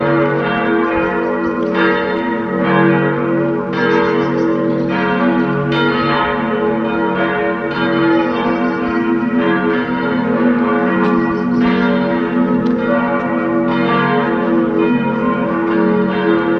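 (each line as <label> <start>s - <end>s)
A metallic bell rings loudly with muffled bird singing in the background. 0.0s - 16.6s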